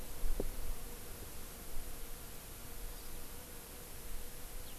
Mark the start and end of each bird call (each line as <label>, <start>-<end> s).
House Finch (Haemorhous mexicanus), 4.7-4.8 s